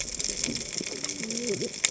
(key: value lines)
label: biophony, cascading saw
recorder: HydroMoth